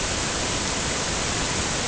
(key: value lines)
label: ambient
recorder: HydroMoth